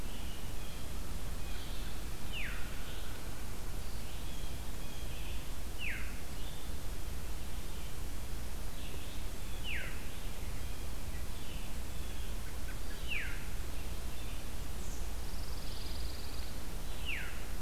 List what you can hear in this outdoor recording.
Red-eyed Vireo, Blue Jay, Veery, American Robin, Pine Warbler